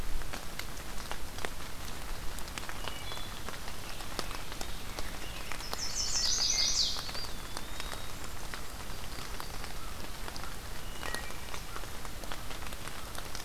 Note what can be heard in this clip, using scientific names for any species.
Hylocichla mustelina, Pheucticus ludovicianus, Setophaga pensylvanica, Contopus virens, Setophaga coronata, Corvus brachyrhynchos